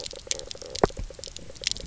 {"label": "biophony", "recorder": "SoundTrap 300"}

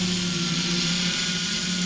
{"label": "anthrophony, boat engine", "recorder": "SoundTrap 500"}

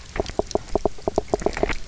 {"label": "biophony, knock croak", "recorder": "SoundTrap 300"}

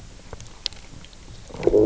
{"label": "biophony, low growl", "recorder": "SoundTrap 300"}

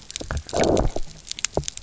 {"label": "biophony, low growl", "recorder": "SoundTrap 300"}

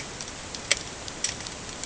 {"label": "ambient", "recorder": "HydroMoth"}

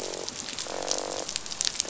{"label": "biophony, croak", "recorder": "SoundTrap 500"}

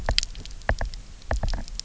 {"label": "biophony, knock", "recorder": "SoundTrap 300"}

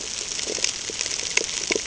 {"label": "ambient", "recorder": "HydroMoth"}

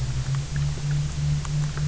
{"label": "anthrophony, boat engine", "recorder": "SoundTrap 300"}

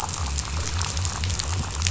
{"label": "biophony", "recorder": "SoundTrap 500"}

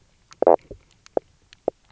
{"label": "biophony, knock croak", "recorder": "SoundTrap 300"}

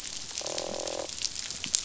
{"label": "biophony, croak", "recorder": "SoundTrap 500"}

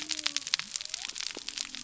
{"label": "biophony", "recorder": "SoundTrap 300"}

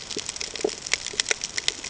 {"label": "ambient", "recorder": "HydroMoth"}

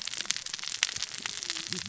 {"label": "biophony, cascading saw", "recorder": "SoundTrap 600 or HydroMoth"}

